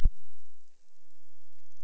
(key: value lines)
label: biophony
recorder: SoundTrap 300